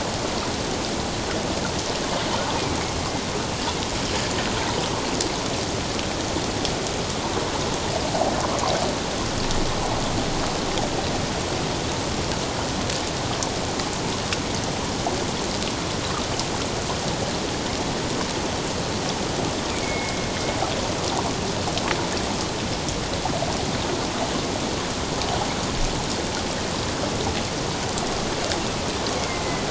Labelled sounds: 19.7	20.3	killer whale, northern resident, A clan, AA subclan, 2.1 to 2.5 kHz
29.2	29.6	killer whale, northern resident, A clan, AA subclan, 2.0 to 2.2 kHz

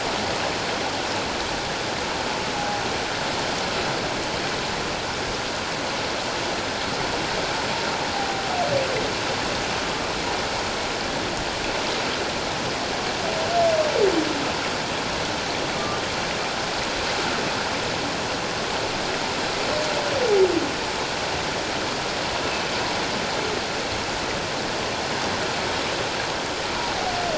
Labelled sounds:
2.5	2.8	humpback whale, 0.78 to 0.84 kHz
15.7	16.0	humpback whale, 1.1 to 1.2 kHz

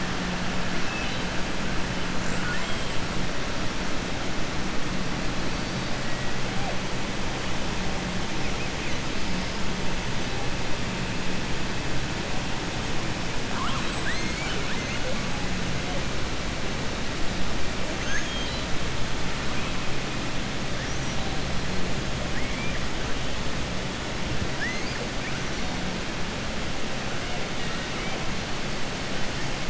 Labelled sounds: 2.3	2.9	killer whale, southern resident, 0.53 to 4.1 kHz
17.9	18.7	killer whale, southern resident, 1.4 to 4.8 kHz
20.8	21.2	killer whale, southern resident, 5.5 to 6.7 kHz
22.2	22.8	killer whale, southern resident, 1.7 to 2.4 kHz

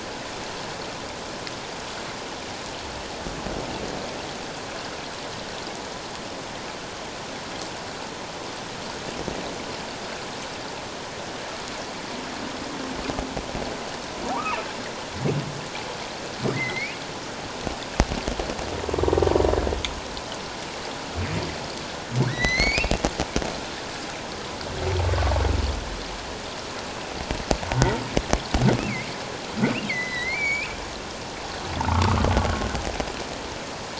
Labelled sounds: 14.3	14.6	humpback whale, 0.84 to 2.8 kHz
16.5	17.0	humpback whale, 1.8 to 2.7 kHz
22.3	23.0	humpback whale, 1.4 to 6.5 kHz
28.8	29.1	humpback whale, 2.0 to 2.8 kHz
29.6	30.7	humpback whale, 1.9 to 7.1 kHz
31.9	32.2	humpback whale, 1.1 to 1.4 kHz

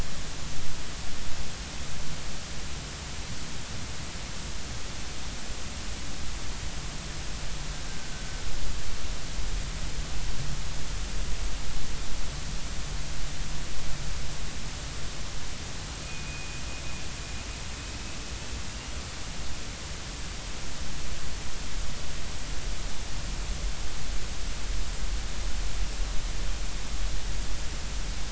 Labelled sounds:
8.1	8.4	killer whale, Bigg's (transient), 1.4 to 1.6 kHz
16.0	16.6	killer whale, Bigg's (transient), 2.4 to 2.6 kHz
18.7	18.9	killer whale, Bigg's (transient), 2.7 to 2.9 kHz

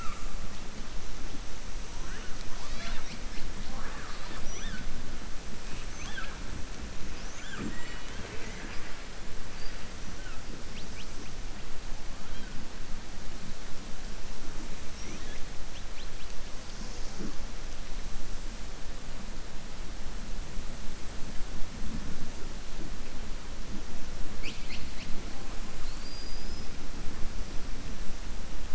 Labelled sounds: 25.7	26.7	killer whale, southern resident, 4.0 to 5.7 kHz

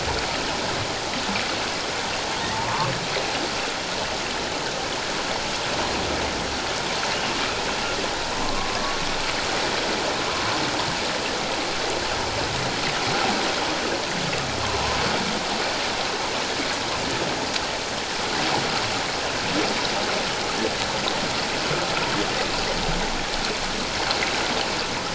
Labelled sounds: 2.5	2.9	humpback whale, 0.84 to 1.3 kHz
8.4	8.7	humpback whale, 0.97 to 1.2 kHz

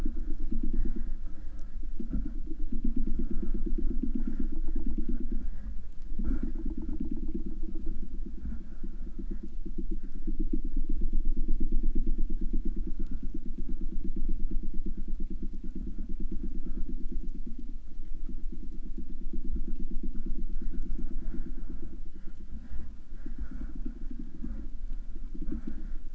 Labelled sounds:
21.9	22.6	killer whale, 2.7 to 3.5 kHz

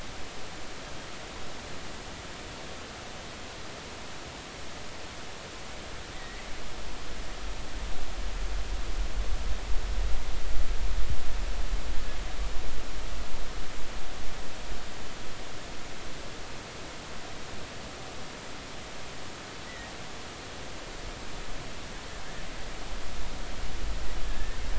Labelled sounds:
6.1	6.4	killer whale, offshore, 1.8 to 2.1 kHz
19.6	19.9	killer whale, offshore, 1.8 to 2.1 kHz
24.2	24.6	killer whale, offshore, 1.6 to 1.9 kHz

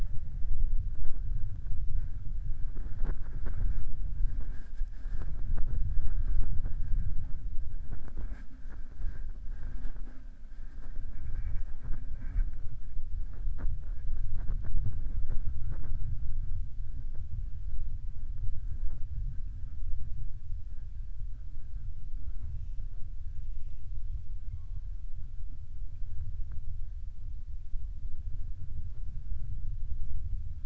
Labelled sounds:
23.3	23.9	killer whale, southern resident, 2.0 to 3.7 kHz

